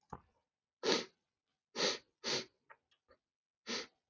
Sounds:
Sniff